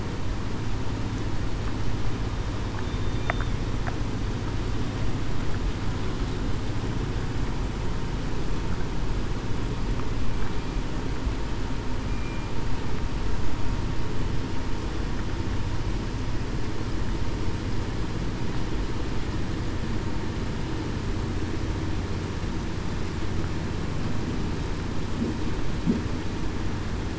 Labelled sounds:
2.8	3.2	killer whale, southern resident, 3.5 to 3.7 kHz
12.1	12.5	killer whale, southern resident, 2.3 to 2.4 kHz

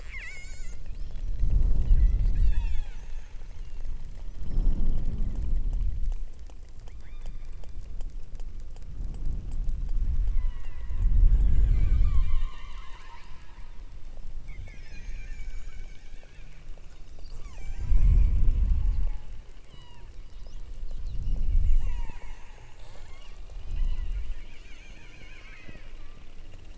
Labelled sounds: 0.1	0.8	killer whale, southern Alaska resident, 1.2 to 8.0 kHz
1.8	3.1	killer whale, southern Alaska resident, 0.57 to 8.0 kHz
3.4	3.9	killer whale, southern Alaska resident, 2.4 to 3.9 kHz
7.0	7.6	killer whale, southern Alaska resident, 1.4 to 4.8 kHz
10.2	11.3	killer whale, southern Alaska resident, 0.71 to 4.1 kHz
12.0	13.5	killer whale, southern Alaska resident, 0.62 to 5.2 kHz
17.2	18.1	killer whale, southern Alaska resident, 0.68 to 8.0 kHz
18.7	20.2	killer whale, southern Alaska resident, 0.64 to 7.0 kHz
21.6	24.2	killer whale, southern Alaska resident, 0.27 to 8.0 kHz
24.4	26.0	killer whale, southern Alaska resident, 0.78 to 8.0 kHz

